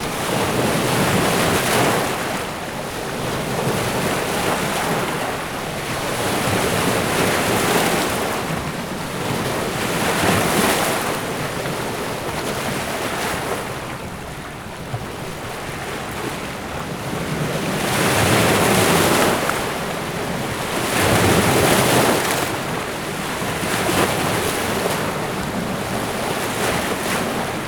Is the beach nearby?
yes